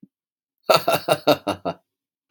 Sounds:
Laughter